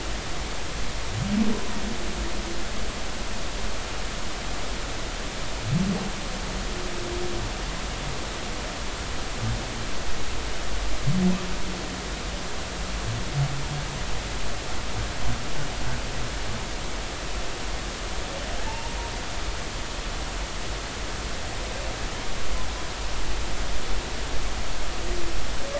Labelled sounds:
18.7	19.0	humpback whale, 0.80 to 0.99 kHz

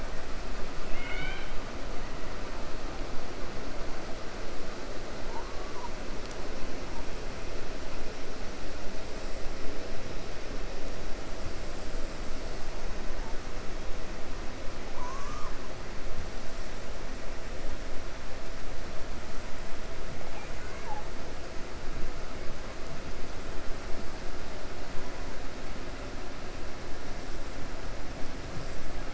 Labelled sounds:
14.8	15.6	killer whale, 0.81 to 1.7 kHz
20.2	21.1	killer whale, 0.81 to 2.9 kHz

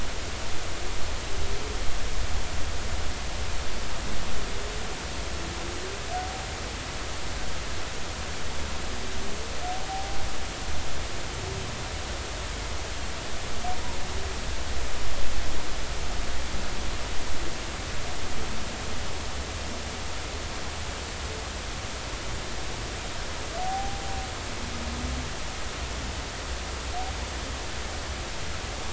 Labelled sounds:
9.9	10.2	humpback whale, 0.80 to 0.86 kHz
23.6	24.0	humpback whale, 0.80 to 0.83 kHz

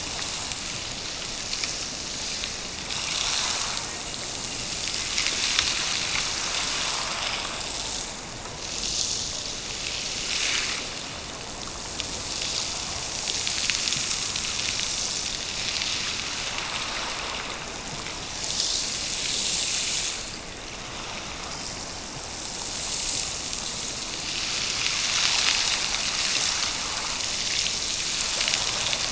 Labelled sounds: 4.2	5.2	killer whale, Bigg's (transient), Gulf of Alaska transient, 1.9 to 3.0 kHz

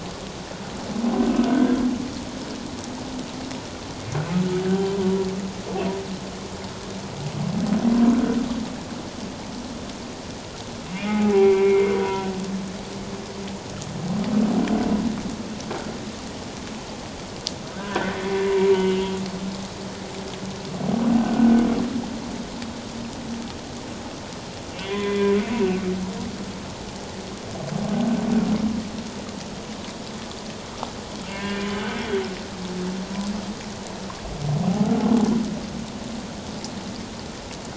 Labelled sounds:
1.5	1.8	humpback whale, 1.5 to 1.7 kHz
4.7	5.0	humpback whale, 3.0 to 3.2 kHz
10.9	12.3	humpback whale, 0.78 to 2.5 kHz
17.8	19.1	humpback whale, 0.91 to 3.1 kHz
21.2	21.5	humpback whale, 1.4 to 1.6 kHz
24.8	25.3	humpback whale, 0.97 to 3.5 kHz
31.3	31.6	humpback whale, 1.5 to 2.9 kHz

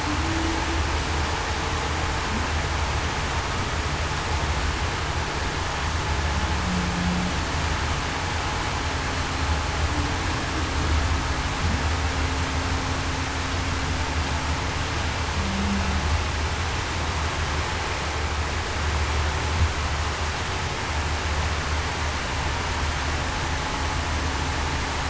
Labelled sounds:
0.2	0.6	humpback whale, 0.30 to 0.35 kHz
15.3	15.8	humpback whale, 0.19 to 0.23 kHz

